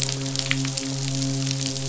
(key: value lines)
label: biophony, midshipman
recorder: SoundTrap 500